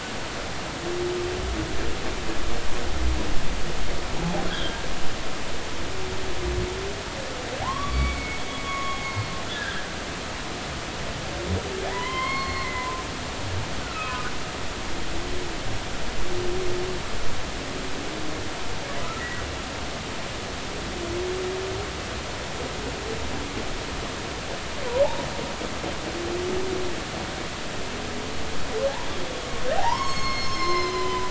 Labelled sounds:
4.5	4.8	humpback whale, 1.4 to 3.6 kHz
7.6	9.9	humpback whale, 0.80 to 4.4 kHz
11.9	14.3	humpback whale, 0.90 to 4.4 kHz
29.8	31.2	humpback whale, 0.80 to 7.6 kHz

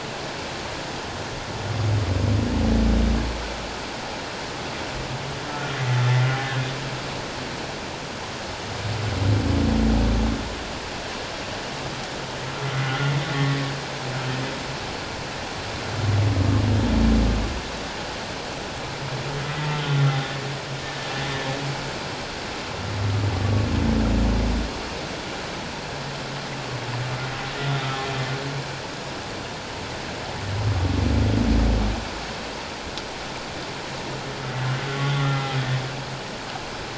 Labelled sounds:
5.5	5.8	humpback whale, 1.3 to 1.5 kHz
12.8	13.1	humpback whale, 1.3 to 1.5 kHz
19.5	19.8	humpback whale, 1.9 to 2.1 kHz
35.1	35.6	humpback whale, 1.3 to 2.1 kHz

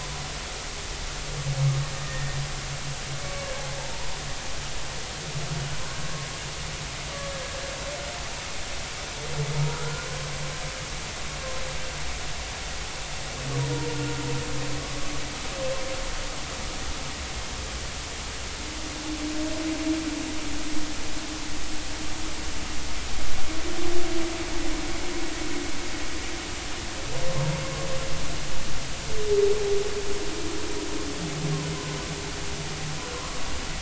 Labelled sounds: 2.0	2.4	humpback whale, 1.8 to 2.0 kHz
3.2	4.1	humpback whale, 0.83 to 2.3 kHz
33.1	33.4	humpback whale, 0.96 to 1.2 kHz

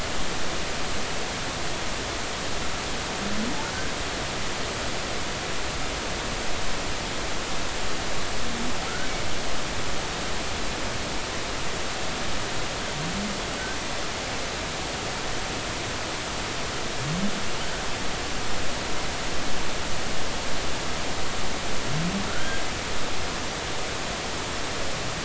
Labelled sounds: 22.3	22.6	humpback whale, 1.3 to 1.7 kHz

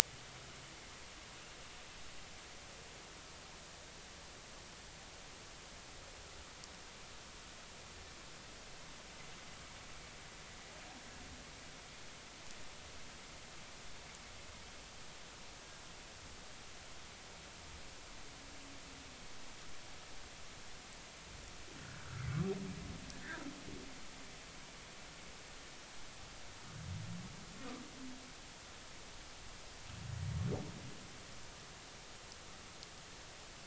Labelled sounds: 21.8	22.3	humpback whale, 1.3 to 1.7 kHz

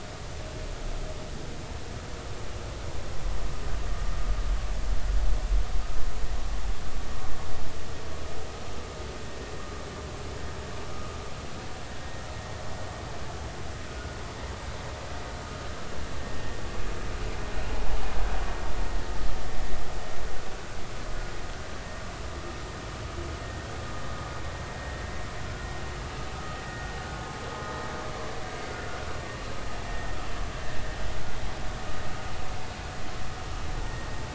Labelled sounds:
13.9	14.2	vessel noise, 1.4 to 1.5 kHz
26.7	27.0	vessel noise, 1.4 to 1.5 kHz
29.9	30.2	vessel noise, 1.8 to 2.0 kHz

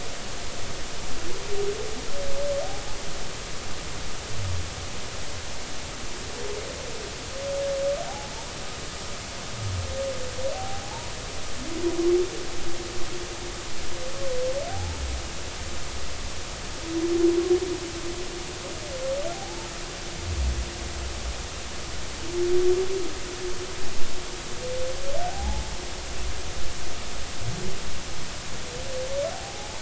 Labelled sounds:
8.0	8.3	humpback whale, 0.80 to 0.90 kHz
10.5	11.1	humpback whale, 0.80 to 1.1 kHz
14.7	15.0	humpback whale, 0.80 to 0.93 kHz
19.3	19.7	humpback whale, 0.80 to 0.96 kHz
25.2	25.7	humpback whale, 0.80 to 0.93 kHz
29.3	29.7	humpback whale, 0.80 to 0.93 kHz

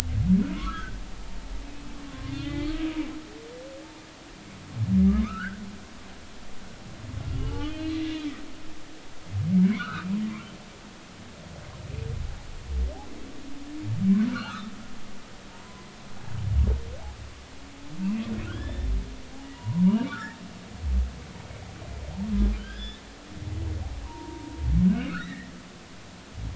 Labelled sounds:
0.5	0.9	humpback whale, 1.0 to 1.8 kHz
2.1	2.7	humpback whale, 0.99 to 3.8 kHz
5.2	5.6	humpback whale, 1.0 to 1.9 kHz
7.3	8.0	humpback whale, 2.8 to 4.2 kHz
9.6	10.1	humpback whale, 1.1 to 3.0 kHz
14.3	14.7	humpback whale, 1.1 to 3.0 kHz
15.5	15.9	humpback whale, 0.86 to 1.1 kHz
18.5	18.9	humpback whale, 1.3 to 3.6 kHz
19.5	19.8	humpback whale, 0.90 to 1.1 kHz
22.6	23.0	humpback whale, 1.4 to 5.4 kHz
24.0	24.5	humpback whale, 0.86 to 1.1 kHz
25.1	25.5	humpback whale, 1.2 to 4.0 kHz

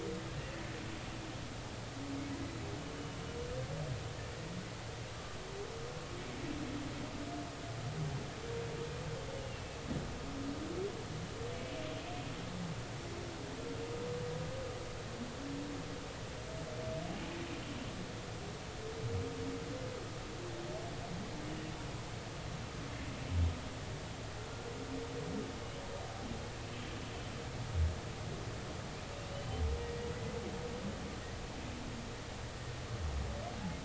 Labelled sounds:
9.4	9.6	humpback whale, 2.6 to 3.0 kHz

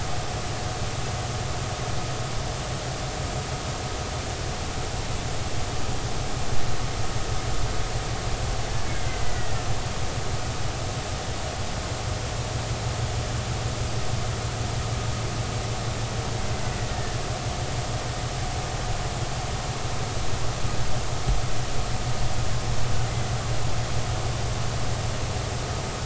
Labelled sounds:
8.8	9.6	killer whale, Bigg's (transient), 1.8 to 2.3 kHz
16.9	17.2	killer whale, Bigg's (transient), 1.7 to 1.9 kHz

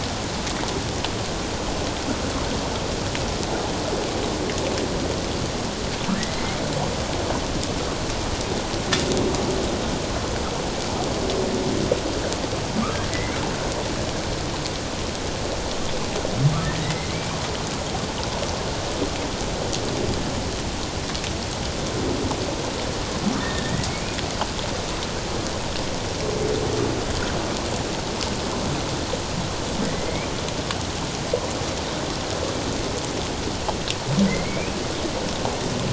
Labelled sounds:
16.6	17.4	humpback whale, 1.7 to 2.5 kHz
23.4	23.9	humpback whale, 1.7 to 2.0 kHz
29.8	30.3	humpback whale, 1.8 to 2.5 kHz
34.3	34.8	humpback whale, 1.9 to 2.6 kHz

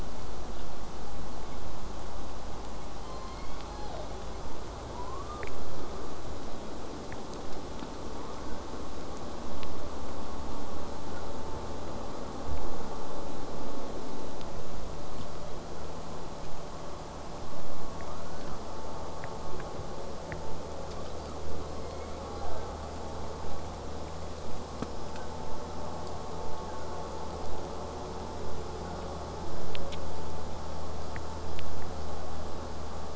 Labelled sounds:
3.0	4.2	killer whale, southern resident, J pod, call S01, 0.25 to 6.0 kHz
4.9	5.5	killer whale, southern resident, J pod, 0.21 to 1.5 kHz
8.2	8.6	killer whale, southern resident, J pod, 0.75 to 1.7 kHz
17.8	18.5	killer whale, southern resident, J pod, 0.58 to 1.7 kHz
20.9	21.3	killer whale, southern resident, J pod, 0.96 to 5.2 kHz
21.7	22.8	killer whale, southern resident, J pod, call S01, 0.33 to 7.3 kHz
24.8	25.3	killer whale, southern resident, J pod, 1.2 to 5.5 kHz

